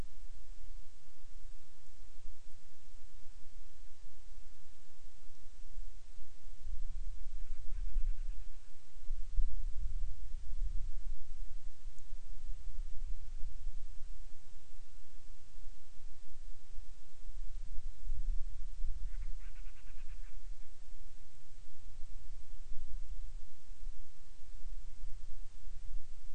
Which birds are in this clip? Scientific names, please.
Hydrobates castro